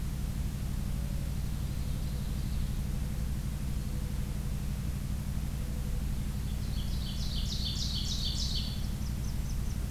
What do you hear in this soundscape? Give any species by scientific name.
Zenaida macroura, Seiurus aurocapilla, Setophaga fusca